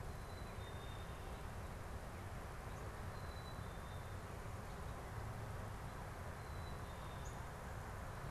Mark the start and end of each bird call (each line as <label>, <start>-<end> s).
Black-capped Chickadee (Poecile atricapillus), 0.0-7.7 s